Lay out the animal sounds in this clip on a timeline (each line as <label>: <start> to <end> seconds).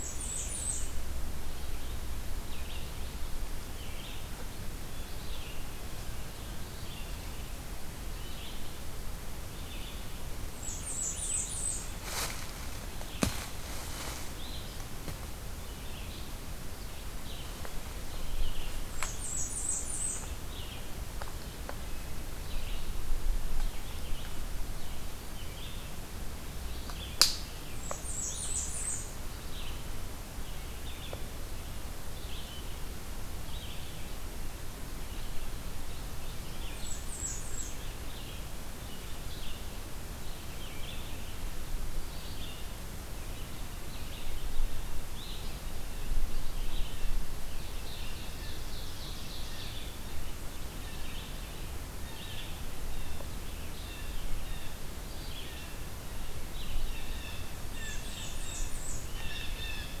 Blackburnian Warbler (Setophaga fusca): 0.0 to 0.8 seconds
Red-eyed Vireo (Vireo olivaceus): 0.1 to 59.5 seconds
Blackburnian Warbler (Setophaga fusca): 10.3 to 11.8 seconds
Blackburnian Warbler (Setophaga fusca): 18.8 to 20.3 seconds
Blackburnian Warbler (Setophaga fusca): 27.6 to 29.1 seconds
Blackburnian Warbler (Setophaga fusca): 36.6 to 37.9 seconds
Ovenbird (Seiurus aurocapilla): 47.4 to 49.9 seconds
Blue Jay (Cyanocitta cristata): 52.7 to 54.8 seconds
Blue Jay (Cyanocitta cristata): 56.7 to 60.0 seconds
Blackburnian Warbler (Setophaga fusca): 57.7 to 59.1 seconds